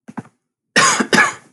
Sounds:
Cough